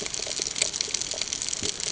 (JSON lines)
{"label": "ambient", "recorder": "HydroMoth"}